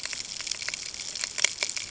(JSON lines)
{"label": "ambient", "recorder": "HydroMoth"}